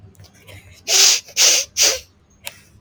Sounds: Sniff